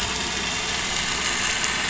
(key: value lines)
label: anthrophony, boat engine
recorder: SoundTrap 500